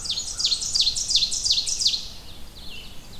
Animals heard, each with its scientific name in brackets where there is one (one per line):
Black-and-white Warbler (Mniotilta varia)
Red-eyed Vireo (Vireo olivaceus)
Ovenbird (Seiurus aurocapilla)
American Crow (Corvus brachyrhynchos)